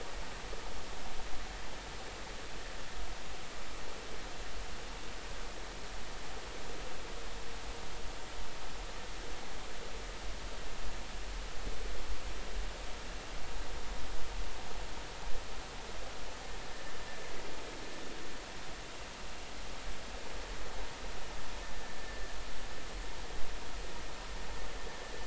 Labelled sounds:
21.9	22.3	vessel noise, 1.6 to 1.8 kHz

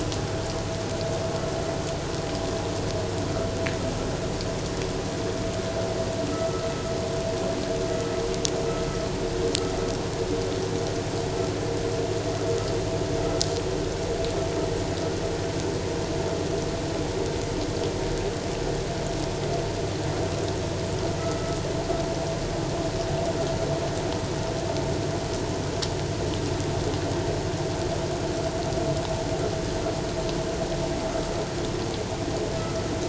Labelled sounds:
21.2	21.6	vessel noise, 1.2 to 1.4 kHz

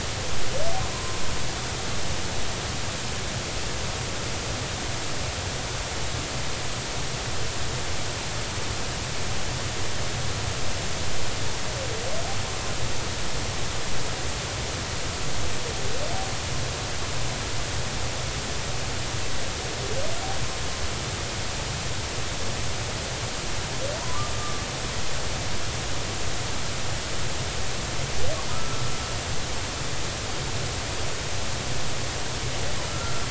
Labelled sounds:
0.9	1.2	humpback whale, 0.96 to 1.1 kHz
24.0	24.6	humpback whale, 0.93 to 1.3 kHz
28.5	28.8	humpback whale, 1.2 to 1.4 kHz
32.9	33.2	humpback whale, 1.3 to 1.4 kHz

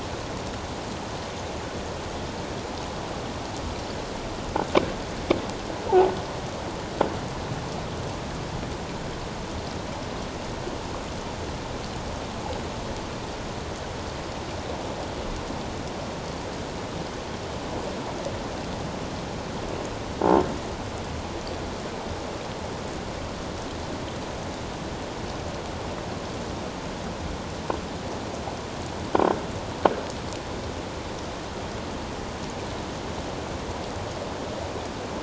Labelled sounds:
5.9	6.1	croaking sound likely from a nearby submerged object, 0.78 to 0.97 kHz

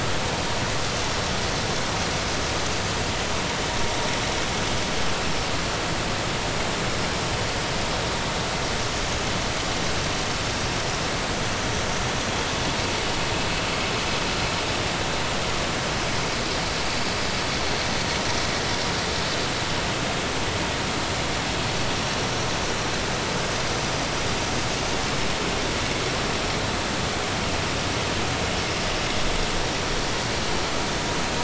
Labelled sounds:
5.2	5.5	vessel noise, 5.4 to 5.5 kHz

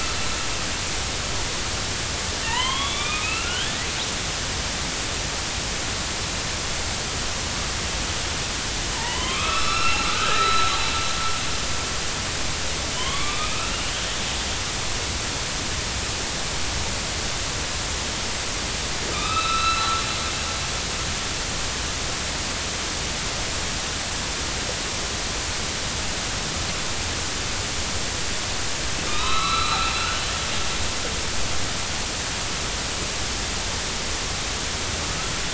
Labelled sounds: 2.4	3.8	killer whale, northern resident, A clan, AB subclan, 0.83 to 3.7 kHz
8.9	10.7	killer whale, northern resident, A clan, AB subclan, 0.86 to 5.4 kHz
12.9	13.9	killer whale, northern resident, A clan, AB subclan, 0.93 to 3.5 kHz
19.1	20.0	killer whale, northern resident, A clan, AB subclan, 1.2 to 4.1 kHz
29.1	29.8	killer whale, northern resident, A clan, AB subclan, 0.93 to 4.1 kHz

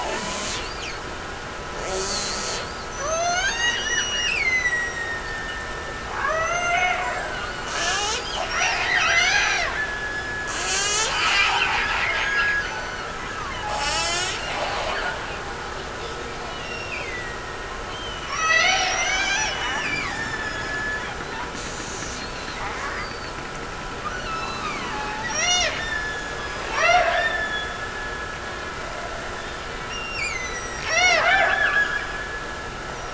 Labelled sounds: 3.0	7.7	killer whale, Bigg's (transient), Gulf of Alaska transient, 0.46 to 8.0 kHz
8.5	13.5	killer whale, Bigg's (transient), Gulf of Alaska transient, 0.48 to 6.1 kHz
16.5	17.9	killer whale, Bigg's (transient), Gulf of Alaska transient, 1.7 to 8.0 kHz
18.3	21.1	killer whale, Bigg's (transient), Gulf of Alaska transient, 0.34 to 6.1 kHz
21.5	22.2	killer whale, Bigg's (transient), Gulf of Alaska transient, 1.2 to 8.0 kHz
25.3	28.7	killer whale, Bigg's (transient), Gulf of Alaska transient, 0.42 to 8.0 kHz
29.9	32.7	killer whale, Bigg's (transient), Gulf of Alaska transient, 0.48 to 8.0 kHz

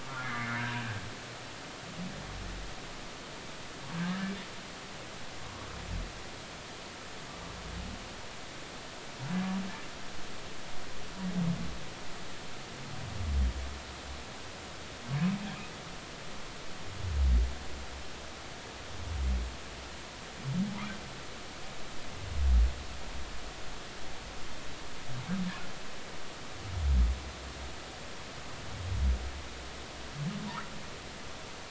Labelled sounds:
0.0	1.0	humpback whale, 1.1 to 2.3 kHz

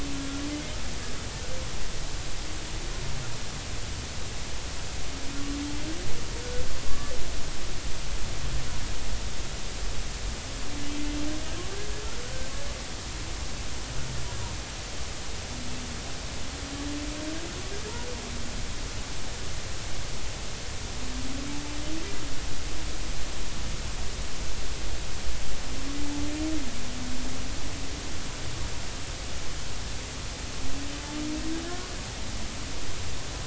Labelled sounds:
6.8	7.1	humpback whale, 1.1 to 1.2 kHz
31.7	31.9	humpback whale, 1.3 to 1.5 kHz

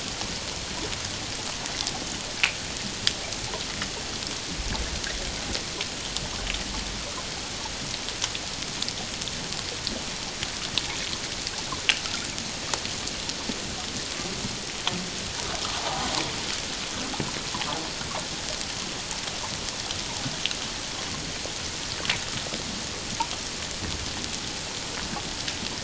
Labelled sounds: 15.8	16.1	water noise, 0.78 to 1.1 kHz

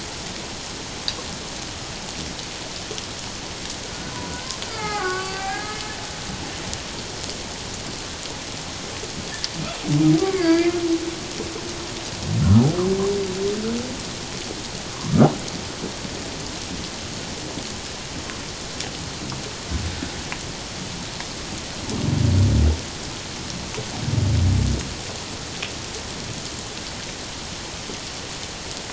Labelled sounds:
4.3	5.9	humpback whale, 0.78 to 2.8 kHz
10.2	10.8	humpback whale, 1.1 to 4.9 kHz
14.9	15.3	humpback whale, 0.94 to 1.4 kHz

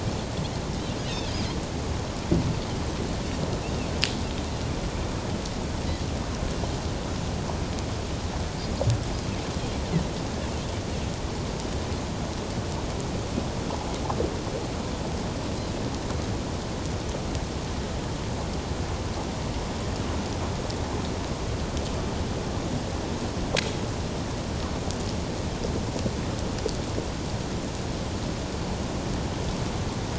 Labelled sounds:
1.0	1.3	Pacific white-sided dolphin, 2.5 to 6.7 kHz

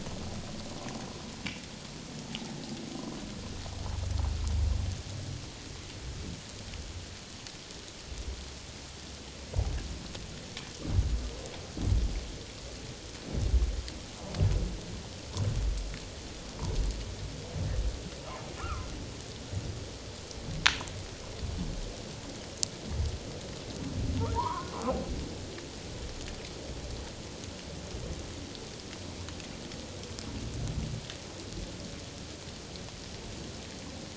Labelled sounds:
18.6	18.9	humpback whale, 0.97 to 1.5 kHz
24.3	24.7	humpback whale, 0.84 to 1.5 kHz

